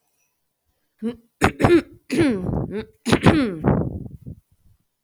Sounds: Throat clearing